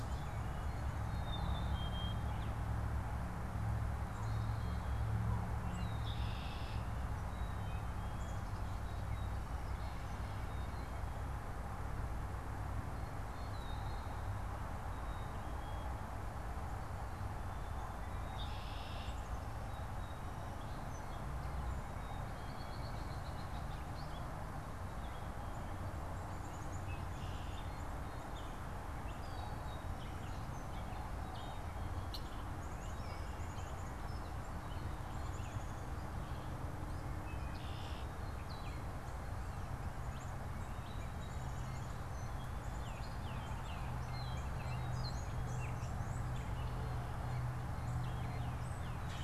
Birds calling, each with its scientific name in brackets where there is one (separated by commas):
Song Sparrow (Melospiza melodia), Red-winged Blackbird (Agelaius phoeniceus), Black-capped Chickadee (Poecile atricapillus), Gray Catbird (Dumetella carolinensis), White-breasted Nuthatch (Sitta carolinensis), Blue Jay (Cyanocitta cristata), Tufted Titmouse (Baeolophus bicolor)